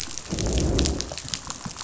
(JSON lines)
{"label": "biophony, growl", "recorder": "SoundTrap 500"}